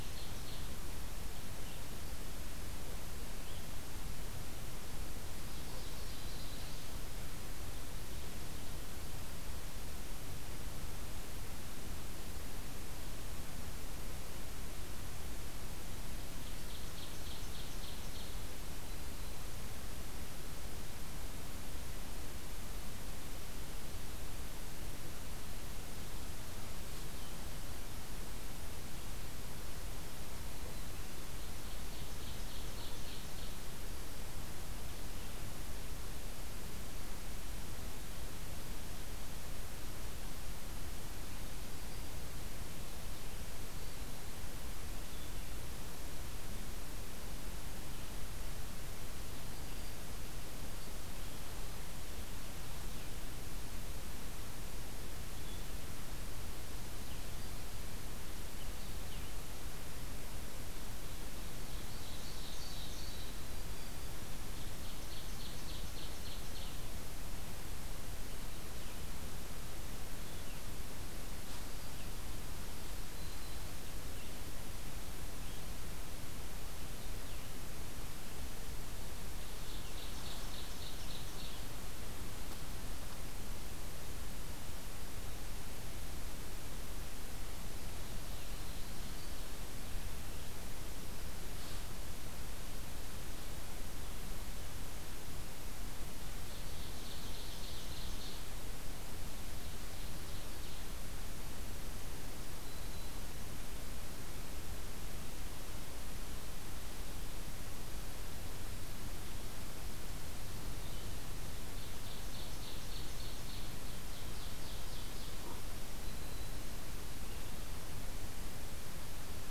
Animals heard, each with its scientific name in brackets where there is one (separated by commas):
Red-eyed Vireo (Vireo olivaceus), Ovenbird (Seiurus aurocapilla), Black-throated Green Warbler (Setophaga virens)